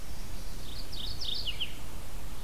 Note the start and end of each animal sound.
0.0s-0.8s: Chestnut-sided Warbler (Setophaga pensylvanica)
0.5s-1.8s: Mourning Warbler (Geothlypis philadelphia)

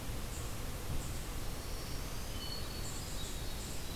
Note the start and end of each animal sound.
0.0s-4.0s: Eastern Chipmunk (Tamias striatus)
1.1s-3.5s: Black-throated Green Warbler (Setophaga virens)
2.3s-4.0s: Hermit Thrush (Catharus guttatus)

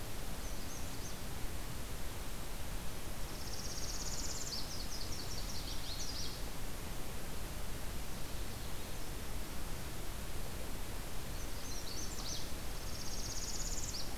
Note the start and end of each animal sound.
0.2s-1.2s: Magnolia Warbler (Setophaga magnolia)
3.1s-4.8s: Northern Parula (Setophaga americana)
4.0s-6.7s: Nashville Warbler (Leiothlypis ruficapilla)
11.1s-12.7s: Magnolia Warbler (Setophaga magnolia)
12.6s-14.2s: Northern Parula (Setophaga americana)

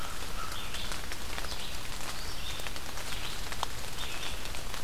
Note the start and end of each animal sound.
0.0s-0.6s: American Crow (Corvus brachyrhynchos)
0.4s-4.8s: Red-eyed Vireo (Vireo olivaceus)

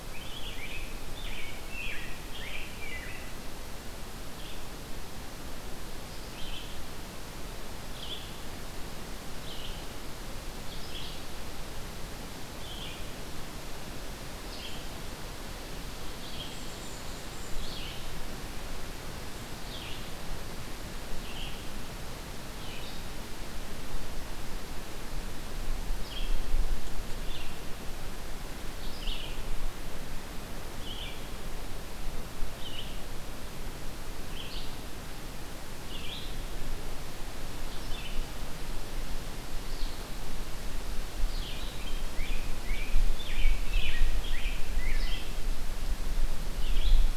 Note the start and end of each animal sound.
0.0s-3.5s: Rose-breasted Grosbeak (Pheucticus ludovicianus)
4.3s-47.2s: Red-eyed Vireo (Vireo olivaceus)
16.4s-17.6s: Golden-crowned Kinglet (Regulus satrapa)
41.7s-45.3s: Rose-breasted Grosbeak (Pheucticus ludovicianus)

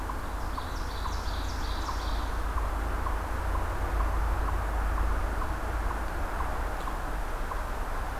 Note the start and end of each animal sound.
0.0s-7.7s: Eastern Chipmunk (Tamias striatus)
0.2s-2.5s: Ovenbird (Seiurus aurocapilla)

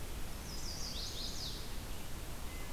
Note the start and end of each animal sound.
0.3s-1.7s: Chestnut-sided Warbler (Setophaga pensylvanica)

